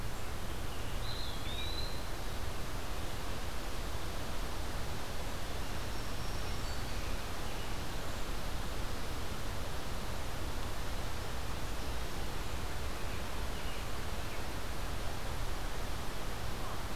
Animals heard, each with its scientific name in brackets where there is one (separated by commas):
Eastern Wood-Pewee (Contopus virens), Black-throated Green Warbler (Setophaga virens)